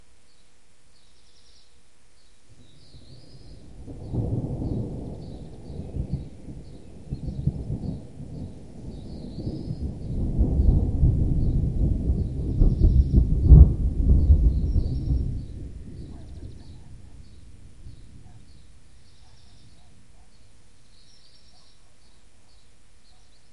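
Birds chirping hastily in a town. 0:00.0 - 0:03.7
Thunderstorm noises with birds chirping hastily in the background. 0:03.8 - 0:16.4
Birds chirping hastily in a small town. 0:16.5 - 0:23.5

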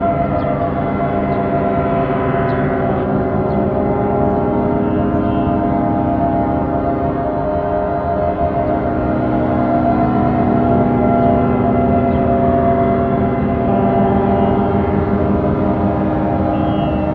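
A loud, continuous metallic horn sounds. 0:00.0 - 0:17.1
Muted bird chirping in the background. 0:00.0 - 0:17.1

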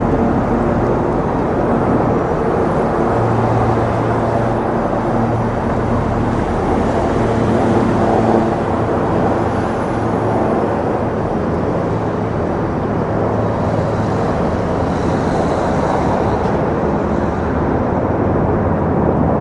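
Traffic noise in the background. 0:00.0 - 0:19.4

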